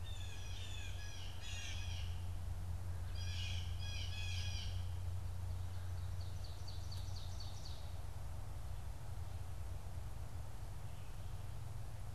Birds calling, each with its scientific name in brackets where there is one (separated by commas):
Blue Jay (Cyanocitta cristata), Ovenbird (Seiurus aurocapilla)